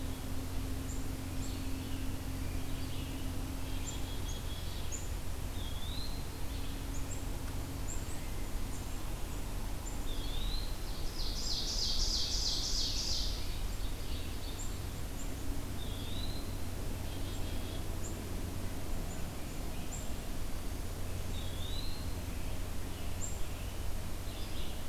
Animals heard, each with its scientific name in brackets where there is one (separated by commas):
Red-eyed Vireo (Vireo olivaceus), Black-capped Chickadee (Poecile atricapillus), Ovenbird (Seiurus aurocapilla), Eastern Wood-Pewee (Contopus virens), Scarlet Tanager (Piranga olivacea)